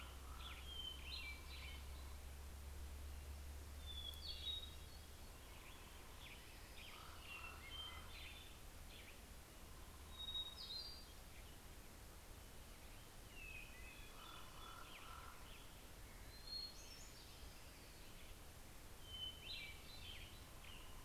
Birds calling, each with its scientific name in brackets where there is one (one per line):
Western Tanager (Piranga ludoviciana)
Common Raven (Corvus corax)
Hermit Thrush (Catharus guttatus)